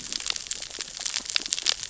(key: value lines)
label: biophony, cascading saw
recorder: SoundTrap 600 or HydroMoth